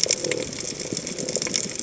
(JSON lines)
{"label": "biophony", "recorder": "HydroMoth"}